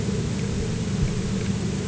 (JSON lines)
{"label": "anthrophony, boat engine", "recorder": "HydroMoth"}